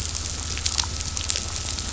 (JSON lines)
{"label": "anthrophony, boat engine", "recorder": "SoundTrap 500"}